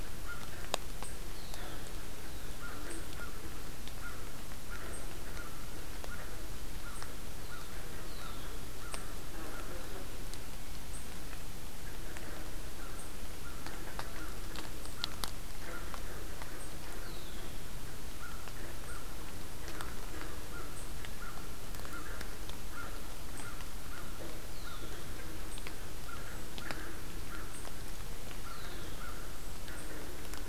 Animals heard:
American Crow (Corvus brachyrhynchos), Red-winged Blackbird (Agelaius phoeniceus)

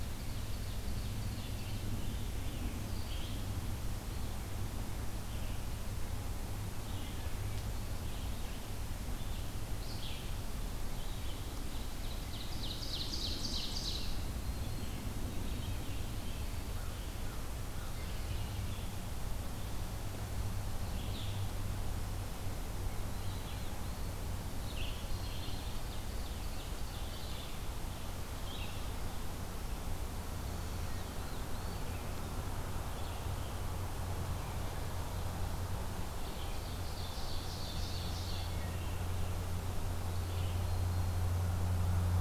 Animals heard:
Black-throated Green Warbler (Setophaga virens), Black-capped Chickadee (Poecile atricapillus), Red-eyed Vireo (Vireo olivaceus), Ovenbird (Seiurus aurocapilla), Black-throated Blue Warbler (Setophaga caerulescens)

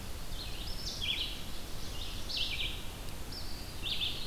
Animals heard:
Eastern Wood-Pewee (Contopus virens), Red-eyed Vireo (Vireo olivaceus)

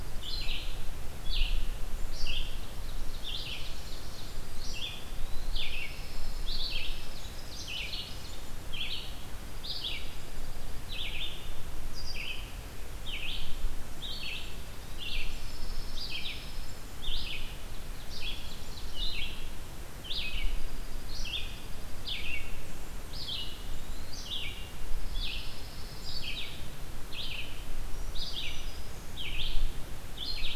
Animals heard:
Eastern Wood-Pewee (Contopus virens), Ovenbird (Seiurus aurocapilla), Red-eyed Vireo (Vireo olivaceus), Pine Warbler (Setophaga pinus), Black-throated Green Warbler (Setophaga virens), Blackburnian Warbler (Setophaga fusca), Dark-eyed Junco (Junco hyemalis)

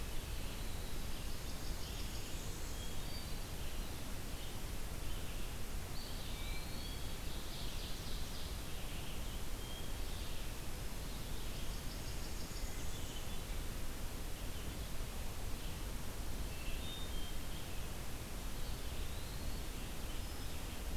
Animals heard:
Eastern Wood-Pewee (Contopus virens), Red-eyed Vireo (Vireo olivaceus), Hermit Thrush (Catharus guttatus), Ovenbird (Seiurus aurocapilla), Blackburnian Warbler (Setophaga fusca)

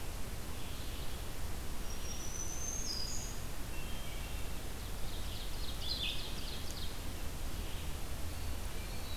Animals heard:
Black-throated Green Warbler (Setophaga virens), Ovenbird (Seiurus aurocapilla), Hermit Thrush (Catharus guttatus), Eastern Wood-Pewee (Contopus virens), Red-eyed Vireo (Vireo olivaceus)

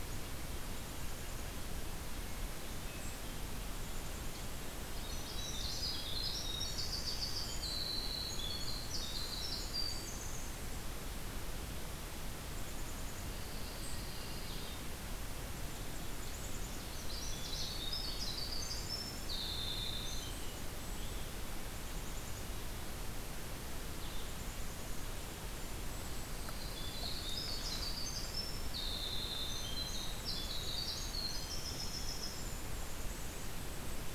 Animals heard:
Hermit Thrush (Catharus guttatus), Winter Wren (Troglodytes hiemalis), Black-capped Chickadee (Poecile atricapillus), Golden-crowned Kinglet (Regulus satrapa), Pine Warbler (Setophaga pinus)

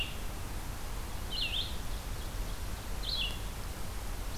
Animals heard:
Red-eyed Vireo (Vireo olivaceus), Ovenbird (Seiurus aurocapilla)

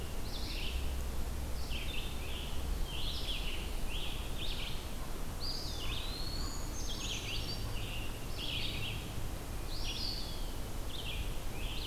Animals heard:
Eastern Wood-Pewee (Contopus virens), Red-eyed Vireo (Vireo olivaceus), Scarlet Tanager (Piranga olivacea), Brown Creeper (Certhia americana)

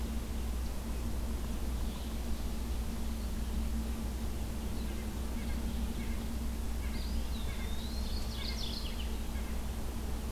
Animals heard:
Mourning Warbler (Geothlypis philadelphia), Eastern Wood-Pewee (Contopus virens), Red-eyed Vireo (Vireo olivaceus), White-breasted Nuthatch (Sitta carolinensis)

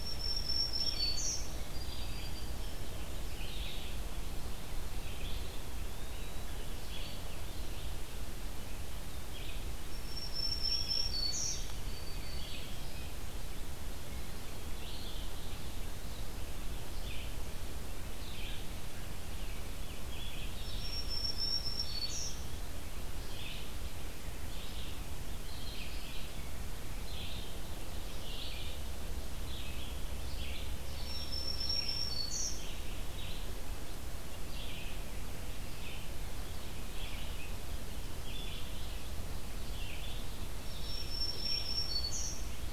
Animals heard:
Black-throated Green Warbler (Setophaga virens), Red-eyed Vireo (Vireo olivaceus), Eastern Wood-Pewee (Contopus virens)

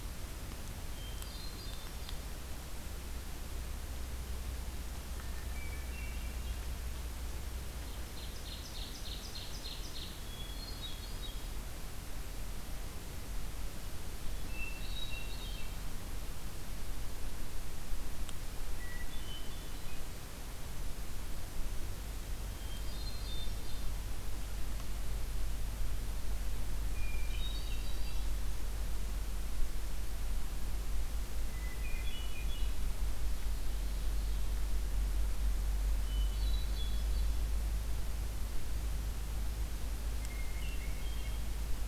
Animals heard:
Ovenbird (Seiurus aurocapilla), Hermit Thrush (Catharus guttatus)

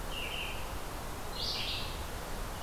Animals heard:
Red-eyed Vireo (Vireo olivaceus)

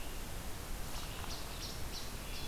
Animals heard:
Least Flycatcher (Empidonax minimus), Hermit Thrush (Catharus guttatus), Red-eyed Vireo (Vireo olivaceus)

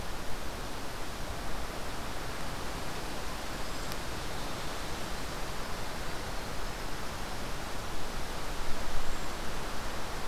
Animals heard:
Brown Creeper (Certhia americana), Winter Wren (Troglodytes hiemalis)

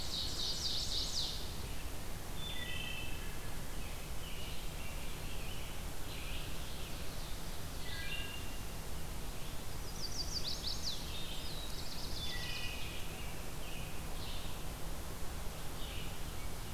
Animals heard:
Chestnut-sided Warbler (Setophaga pensylvanica), Ovenbird (Seiurus aurocapilla), American Robin (Turdus migratorius), Black-throated Blue Warbler (Setophaga caerulescens), Red-eyed Vireo (Vireo olivaceus), Wood Thrush (Hylocichla mustelina)

